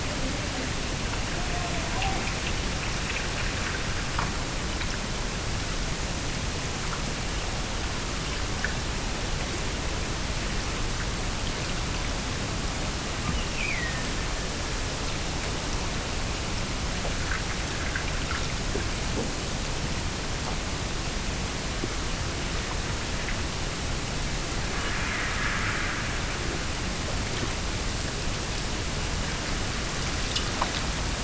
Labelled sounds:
13.3	15.1	killer whale, Bigg's (transient), Gulf of Alaska transient, 1.6 to 3.0 kHz
24.7	25.5	killer whale, Bigg's (transient), Gulf of Alaska transient, 1.7 to 3.1 kHz

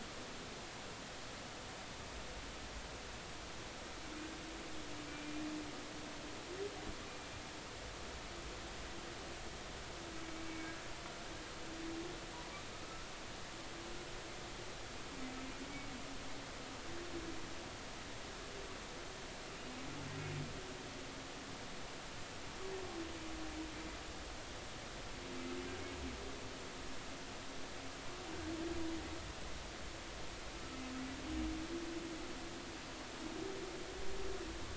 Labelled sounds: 5.1	5.3	humpback whale, 2.3 to 2.4 kHz
10.5	10.9	humpback whale, 1.5 to 2.3 kHz
12.8	13.1	humpback whale, 1.2 to 1.5 kHz

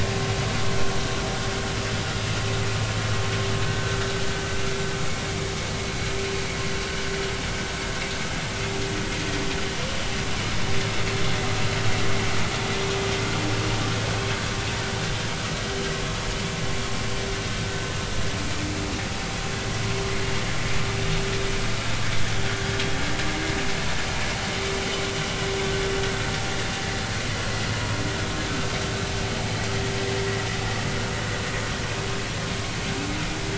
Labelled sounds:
3.6	4.0	vessel noise, 1.5 to 1.6 kHz

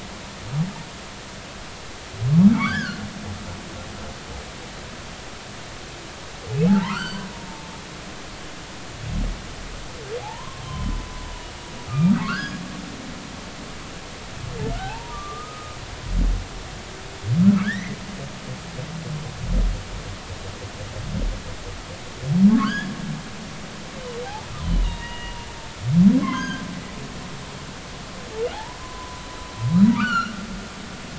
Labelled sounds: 2.5	3.0	humpback whale, 1.0 to 5.3 kHz
6.7	8.2	humpback whale, 0.80 to 7.7 kHz
10.2	10.9	humpback whale, 0.80 to 1.2 kHz
11.9	12.6	humpback whale, 1.0 to 5.1 kHz
14.8	15.8	humpback whale, 0.80 to 1.3 kHz
17.6	18.0	humpback whale, 1.4 to 2.2 kHz
22.5	22.9	humpback whale, 1.0 to 3.5 kHz
24.2	25.4	humpback whale, 0.80 to 4.0 kHz
26.2	26.6	humpback whale, 0.96 to 5.0 kHz
28.5	29.2	humpback whale, 0.80 to 1.1 kHz
30.0	30.3	humpback whale, 1.1 to 4.5 kHz

